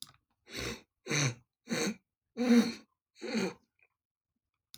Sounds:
Throat clearing